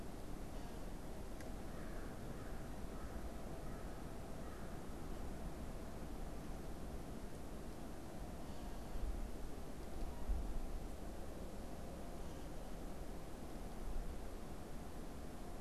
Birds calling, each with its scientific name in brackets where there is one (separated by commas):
American Crow (Corvus brachyrhynchos)